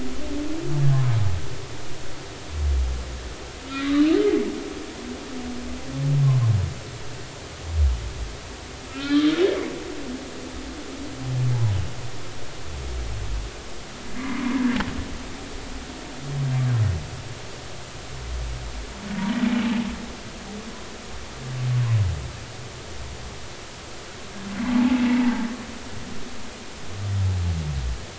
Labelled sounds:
3.7	4.0	humpback whale, 1.9 to 2.1 kHz
8.9	9.3	humpback whale, 1.2 to 3.7 kHz
11.5	11.8	humpback whale, 0.80 to 1.1 kHz
14.2	14.5	humpback whale, 0.96 to 2.3 kHz
24.6	25.3	humpback whale, 0.80 to 2.0 kHz

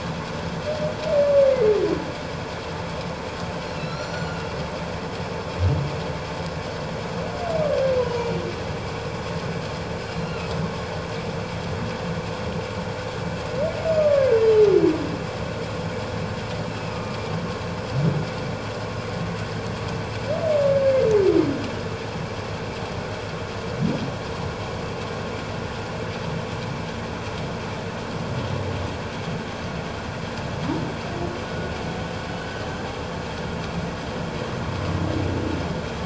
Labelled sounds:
1.5	1.8	humpback whale, 2.0 to 2.2 kHz
3.6	4.4	humpback whale, 3.9 to 5.9 kHz
8.0	8.3	humpback whale, 2.8 to 3.0 kHz
10.1	10.5	humpback whale, 2.5 to 4.2 kHz
14.0	14.3	humpback whale, 1.1 to 1.3 kHz
16.7	17.2	humpback whale, 1.2 to 2.7 kHz
32.5	32.8	humpback whale, 3.0 to 3.2 kHz

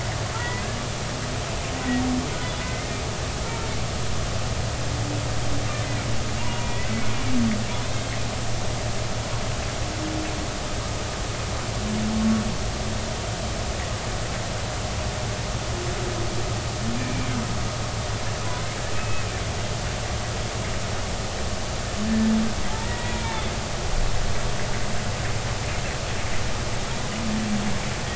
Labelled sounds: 0.3	0.6	humpback whale, 0.86 to 2.0 kHz
2.6	2.9	humpback whale, 2.0 to 2.2 kHz
6.4	6.9	humpback whale, 0.90 to 2.6 kHz
17.0	17.3	humpback whale, 2.2 to 2.5 kHz
18.9	19.3	humpback whale, 2.5 to 2.6 kHz
22.8	23.4	humpback whale, 0.93 to 2.6 kHz

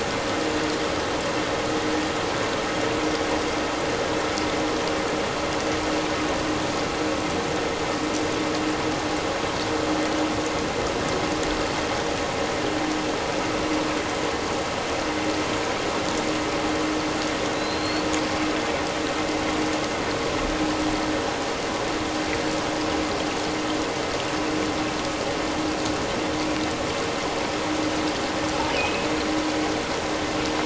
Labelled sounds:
17.5	18.1	killer whale, offshore, 3.8 to 4.5 kHz
28.8	29.1	killer whale, offshore, 2.3 to 2.8 kHz

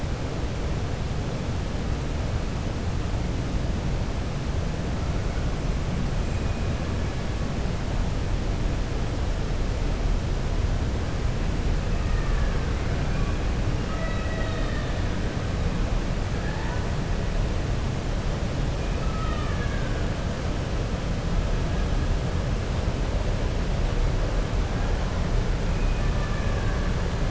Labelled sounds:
12.0	12.6	killer whale, 1.1 to 2.7 kHz
13.8	14.9	killer whale, 0.64 to 4.4 kHz
18.9	20.0	killer whale, 1.1 to 3.7 kHz

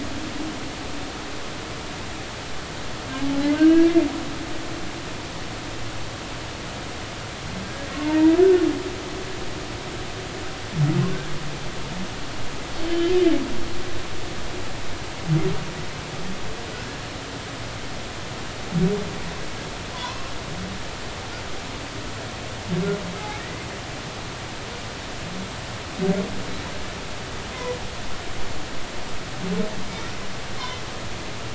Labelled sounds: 3.3	4.0	humpback whale, 0.80 to 3.0 kHz
8.0	8.4	humpback whale, 0.86 to 2.0 kHz
12.8	13.1	humpback whale, 3.0 to 3.1 kHz
19.9	20.3	humpback whale, 0.93 to 1.1 kHz
23.2	23.7	humpback whale, 1.8 to 2.3 kHz

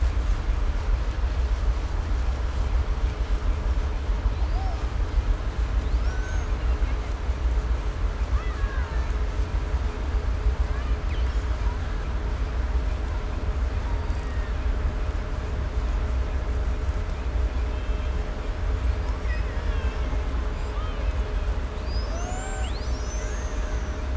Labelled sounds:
4.0	5.3	killer whale, 0.46 to 6.5 kHz
5.7	7.2	killer whale, 0.49 to 7.0 kHz
8.1	9.5	killer whale, 0.52 to 5.3 kHz
10.2	11.7	killer whale, Bigg's (transient), 0.62 to 7.5 kHz
13.4	14.9	killer whale, Bigg's (transient), call T02, 0.65 to 5.1 kHz
17.4	18.5	killer whale, Bigg's (transient), 1.4 to 4.7 kHz
18.8	24.1	killer whale, 0.46 to 8.0 kHz

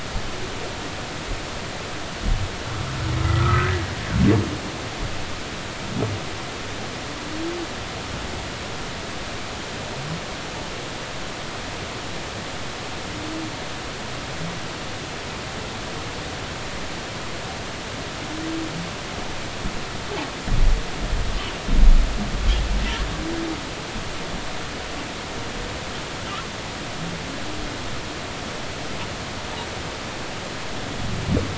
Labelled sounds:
3.2	3.9	humpback whale, 1.1 to 1.8 kHz

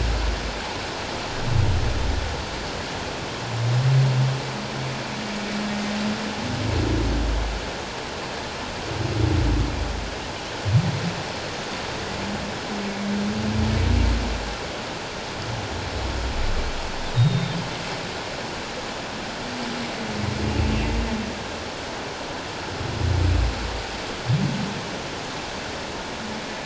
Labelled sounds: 17.2	17.6	humpback whale, 3.6 to 3.8 kHz

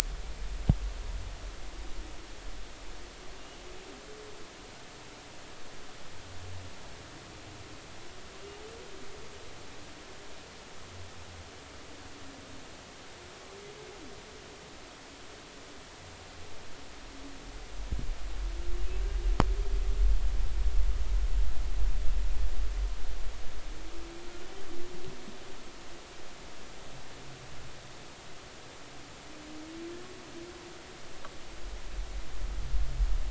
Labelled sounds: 3.4	3.6	humpback whale, 2.7 to 2.9 kHz

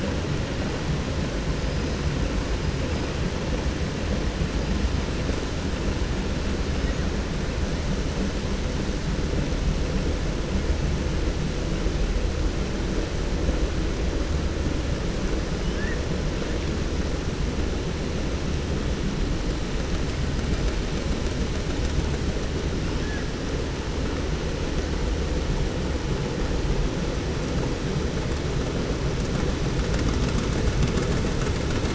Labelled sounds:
1.5	3.2	killer whale, 4.0 to 8.0 kHz
4.5	5.1	killer whale, 4.4 to 8.0 kHz
6.6	7.1	killer whale, 1.4 to 8.0 kHz
15.3	16.0	killer whale, 1.3 to 8.0 kHz
22.6	23.3	killer whale, 0.99 to 8.0 kHz

